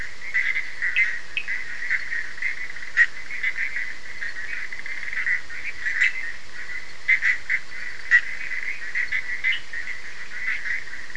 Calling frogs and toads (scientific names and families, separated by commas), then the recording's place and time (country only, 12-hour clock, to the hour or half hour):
Boana bischoffi (Hylidae), Sphaenorhynchus surdus (Hylidae)
Brazil, ~3am